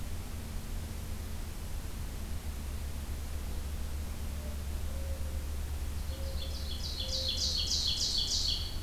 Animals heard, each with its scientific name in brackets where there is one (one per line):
Ovenbird (Seiurus aurocapilla)
Mourning Dove (Zenaida macroura)